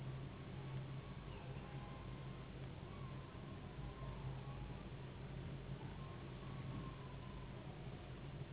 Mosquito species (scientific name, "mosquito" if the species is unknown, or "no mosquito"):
Anopheles gambiae s.s.